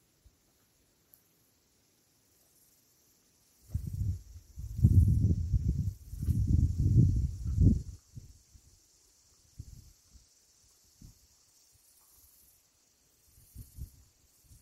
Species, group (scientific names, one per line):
Aleeta curvicosta
Cicadidae